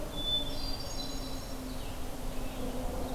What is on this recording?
Hermit Thrush, Blue-headed Vireo, Ovenbird